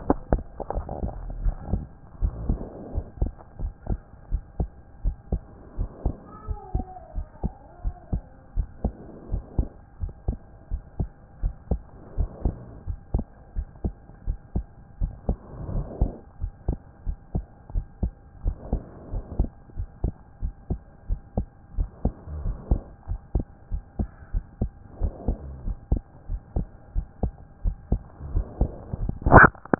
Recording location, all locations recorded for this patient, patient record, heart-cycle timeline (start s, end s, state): pulmonary valve (PV)
aortic valve (AV)+pulmonary valve (PV)+tricuspid valve (TV)+mitral valve (MV)
#Age: Child
#Sex: Male
#Height: 128.0 cm
#Weight: 24.1 kg
#Pregnancy status: False
#Murmur: Absent
#Murmur locations: nan
#Most audible location: nan
#Systolic murmur timing: nan
#Systolic murmur shape: nan
#Systolic murmur grading: nan
#Systolic murmur pitch: nan
#Systolic murmur quality: nan
#Diastolic murmur timing: nan
#Diastolic murmur shape: nan
#Diastolic murmur grading: nan
#Diastolic murmur pitch: nan
#Diastolic murmur quality: nan
#Outcome: Abnormal
#Campaign: 2014 screening campaign
0.00	1.42	unannotated
1.42	1.56	S1
1.56	1.70	systole
1.70	1.84	S2
1.84	2.22	diastole
2.22	2.34	S1
2.34	2.48	systole
2.48	2.60	S2
2.60	2.94	diastole
2.94	3.06	S1
3.06	3.20	systole
3.20	3.32	S2
3.32	3.60	diastole
3.60	3.72	S1
3.72	3.88	systole
3.88	3.98	S2
3.98	4.32	diastole
4.32	4.42	S1
4.42	4.58	systole
4.58	4.70	S2
4.70	5.04	diastole
5.04	5.16	S1
5.16	5.32	systole
5.32	5.40	S2
5.40	5.78	diastole
5.78	5.90	S1
5.90	6.04	systole
6.04	6.14	S2
6.14	6.48	diastole
6.48	6.58	S1
6.58	6.74	systole
6.74	6.84	S2
6.84	7.16	diastole
7.16	7.26	S1
7.26	7.42	systole
7.42	7.52	S2
7.52	7.84	diastole
7.84	7.96	S1
7.96	8.12	systole
8.12	8.22	S2
8.22	8.56	diastole
8.56	8.68	S1
8.68	8.84	systole
8.84	8.94	S2
8.94	9.32	diastole
9.32	9.42	S1
9.42	9.58	systole
9.58	9.68	S2
9.68	10.02	diastole
10.02	10.12	S1
10.12	10.28	systole
10.28	10.38	S2
10.38	10.70	diastole
10.70	10.82	S1
10.82	10.98	systole
10.98	11.08	S2
11.08	11.42	diastole
11.42	11.54	S1
11.54	11.70	systole
11.70	11.80	S2
11.80	12.18	diastole
12.18	12.30	S1
12.30	12.44	systole
12.44	12.54	S2
12.54	12.88	diastole
12.88	12.98	S1
12.98	13.14	systole
13.14	13.24	S2
13.24	13.56	diastole
13.56	13.66	S1
13.66	13.84	systole
13.84	13.94	S2
13.94	14.26	diastole
14.26	14.38	S1
14.38	14.54	systole
14.54	14.66	S2
14.66	15.00	diastole
15.00	15.12	S1
15.12	15.28	systole
15.28	15.36	S2
15.36	15.72	diastole
15.72	15.86	S1
15.86	16.00	systole
16.00	16.12	S2
16.12	16.42	diastole
16.42	16.52	S1
16.52	16.68	systole
16.68	16.78	S2
16.78	17.06	diastole
17.06	17.16	S1
17.16	17.34	systole
17.34	17.44	S2
17.44	17.74	diastole
17.74	17.86	S1
17.86	18.02	systole
18.02	18.12	S2
18.12	18.44	diastole
18.44	18.56	S1
18.56	18.72	systole
18.72	18.82	S2
18.82	19.12	diastole
19.12	19.24	S1
19.24	19.38	systole
19.38	19.50	S2
19.50	19.78	diastole
19.78	19.88	S1
19.88	20.02	systole
20.02	20.14	S2
20.14	20.42	diastole
20.42	20.54	S1
20.54	20.70	systole
20.70	20.80	S2
20.80	21.08	diastole
21.08	21.20	S1
21.20	21.36	systole
21.36	21.46	S2
21.46	21.76	diastole
21.76	21.88	S1
21.88	22.04	systole
22.04	22.12	S2
22.12	22.44	diastole
22.44	22.56	S1
22.56	22.70	systole
22.70	22.82	S2
22.82	23.08	diastole
23.08	23.20	S1
23.20	23.34	systole
23.34	23.46	S2
23.46	23.72	diastole
23.72	23.82	S1
23.82	23.98	systole
23.98	24.08	S2
24.08	24.34	diastole
24.34	24.44	S1
24.44	24.60	systole
24.60	24.70	S2
24.70	25.00	diastole
25.00	25.12	S1
25.12	25.26	systole
25.26	25.36	S2
25.36	25.66	diastole
25.66	25.78	S1
25.78	25.90	systole
25.90	26.02	S2
26.02	26.30	diastole
26.30	26.40	S1
26.40	26.56	systole
26.56	26.66	S2
26.66	26.94	diastole
26.94	27.06	S1
27.06	27.22	systole
27.22	27.32	S2
27.32	27.64	diastole
27.64	27.76	S1
27.76	27.90	systole
27.90	28.00	S2
28.00	28.32	diastole
28.32	29.79	unannotated